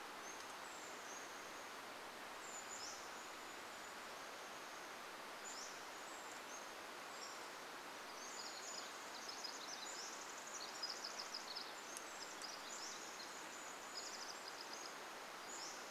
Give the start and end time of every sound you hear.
0s-4s: Brown Creeper call
0s-8s: Pacific-slope Flycatcher song
6s-10s: Brown Creeper call
8s-16s: Pacific Wren song
12s-14s: Brown Creeper call
12s-16s: Pacific-slope Flycatcher song

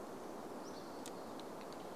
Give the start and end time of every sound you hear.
0s-2s: Hammond's Flycatcher song

